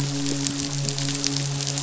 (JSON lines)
{"label": "biophony, midshipman", "recorder": "SoundTrap 500"}